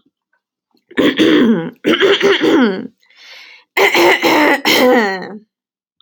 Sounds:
Throat clearing